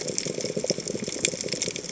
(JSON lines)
{"label": "biophony, chatter", "recorder": "HydroMoth"}